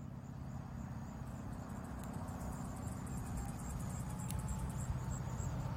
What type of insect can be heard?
orthopteran